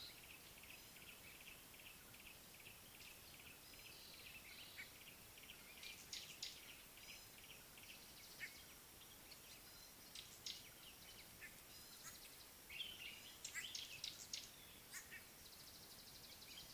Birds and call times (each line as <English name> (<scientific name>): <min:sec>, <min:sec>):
Yellow-breasted Apalis (Apalis flavida): 0:02.6
Common Bulbul (Pycnonotus barbatus): 0:04.4, 0:12.9
Gray-backed Camaroptera (Camaroptera brevicaudata): 0:06.1, 0:10.4